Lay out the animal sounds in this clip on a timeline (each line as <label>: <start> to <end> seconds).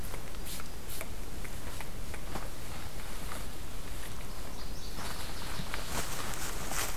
Northern Waterthrush (Parkesia noveboracensis): 4.2 to 6.1 seconds